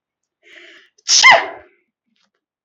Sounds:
Sneeze